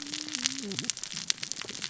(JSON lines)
{"label": "biophony, cascading saw", "recorder": "SoundTrap 600 or HydroMoth"}